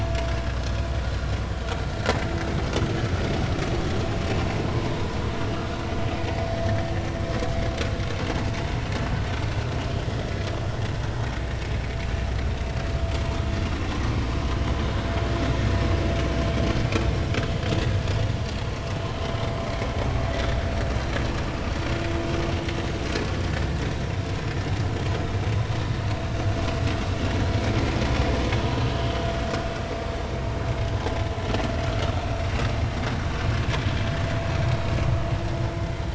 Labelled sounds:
1.1	1.3	vessel noise, 4.0 to 4.2 kHz
29.0	29.3	vessel noise, 2.9 to 3.3 kHz

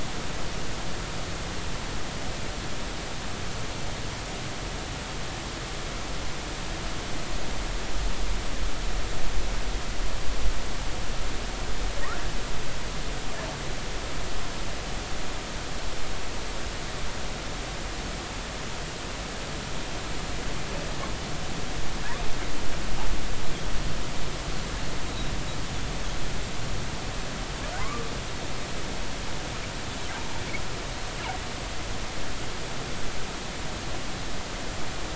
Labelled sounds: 27.8	28.1	humpback whale, 0.96 to 1.3 kHz

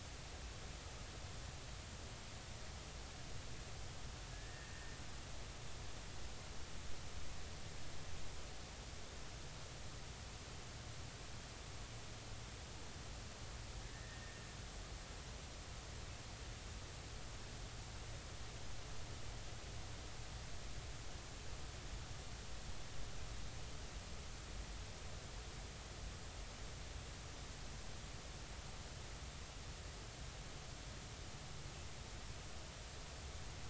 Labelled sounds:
4.3	5.0	killer whale, Bigg's (transient), 1.6 to 2.0 kHz
13.9	14.4	killer whale, Bigg's (transient), 1.7 to 1.9 kHz

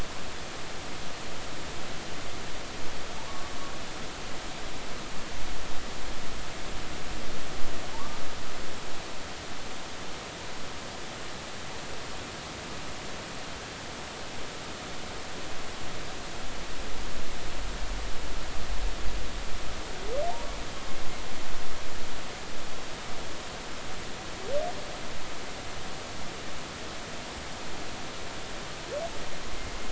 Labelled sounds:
3.2	3.5	humpback whale, 0.83 to 1.2 kHz
7.9	8.2	humpback whale, 0.83 to 1.2 kHz

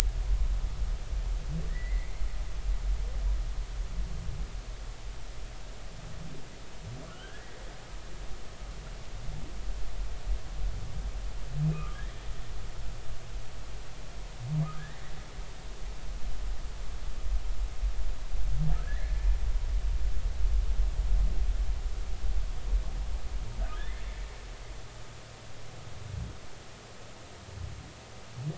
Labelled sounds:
1.7	2.1	humpback whale, 1.7 to 2.3 kHz
7.1	7.5	humpback whale, 1.3 to 1.8 kHz
11.7	12.2	humpback whale, 1.1 to 3.4 kHz
14.7	15.0	humpback whale, 1.5 to 2.0 kHz
18.8	19.2	humpback whale, 1.4 to 2.3 kHz
23.7	24.0	humpback whale, 1.5 to 1.9 kHz

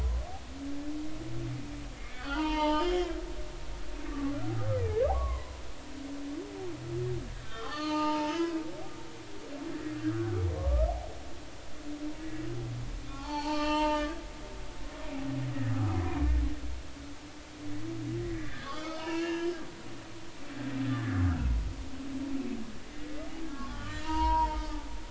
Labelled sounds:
2.0	3.1	humpback whale, 0.80 to 5.4 kHz
4.1	5.6	humpback whale, 0.80 to 2.1 kHz
7.4	8.6	humpback whale, 0.83 to 4.7 kHz
10.1	10.9	humpback whale, 1.0 to 1.6 kHz
13.1	14.0	humpback whale, 0.80 to 4.6 kHz
15.5	15.8	humpback whale, 1.6 to 2.0 kHz
18.2	19.5	humpback whale, 0.86 to 3.6 kHz
20.8	21.2	humpback whale, 1.3 to 1.8 kHz
23.4	24.6	humpback whale, 0.86 to 4.5 kHz

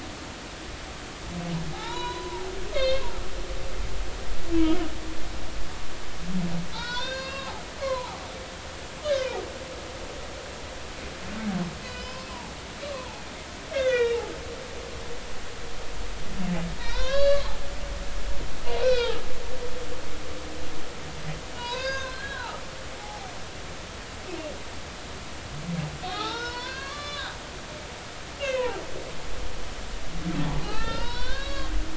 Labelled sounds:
1.7	3.0	humpback whale, 0.80 to 4.4 kHz
6.7	7.5	humpback whale, 0.83 to 5.9 kHz
7.8	8.2	humpback whale, 0.80 to 1.2 kHz
9.1	9.4	humpback whale, 1.4 to 1.8 kHz
11.8	12.3	humpback whale, 2.4 to 5.3 kHz
12.8	13.2	humpback whale, 0.80 to 1.2 kHz
13.7	14.2	humpback whale, 1.3 to 3.8 kHz
16.8	17.5	humpback whale, 0.90 to 5.2 kHz
18.8	19.2	humpback whale, 1.2 to 5.2 kHz
21.6	22.6	humpback whale, 0.80 to 6.5 kHz
23.0	23.3	humpback whale, 0.80 to 0.90 kHz
26.0	27.4	humpback whale, 0.80 to 5.6 kHz
28.4	28.7	humpback whale, 1.8 to 3.3 kHz
30.6	31.7	humpback whale, 0.80 to 5.6 kHz

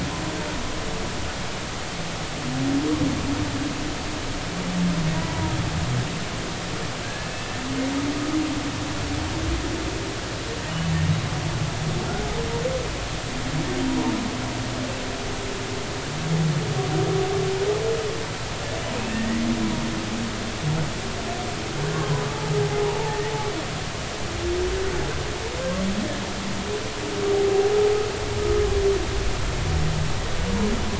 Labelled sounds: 5.1	5.5	humpback whale, 0.90 to 1.0 kHz
7.0	7.3	humpback whale, 1.5 to 1.8 kHz
19.0	19.5	humpback whale, 1.8 to 2.8 kHz
21.9	22.3	humpback whale, 0.93 to 1.2 kHz
23.0	23.2	humpback whale, 0.80 to 0.96 kHz

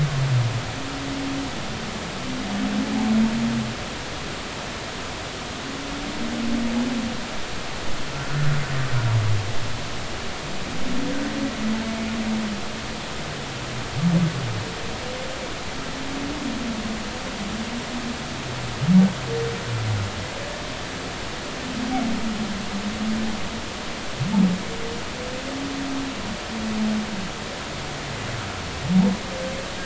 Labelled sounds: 8.1	8.5	humpback whale, 1.3 to 1.6 kHz

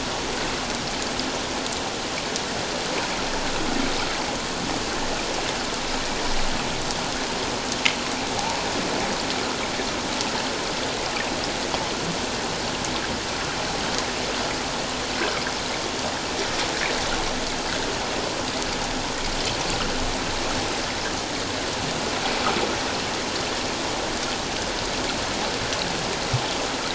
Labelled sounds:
8.4	8.6	humpback whale, 0.78 to 1.1 kHz

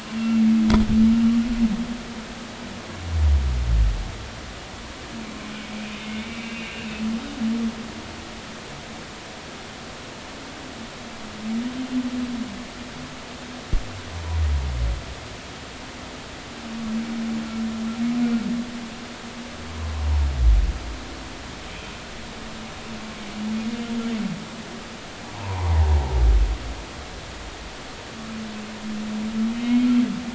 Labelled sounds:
6.0	6.8	humpback whale, 2.1 to 2.8 kHz
25.3	25.7	humpback whale, 0.80 to 1.2 kHz
29.5	29.9	humpback whale, 2.1 to 3.3 kHz

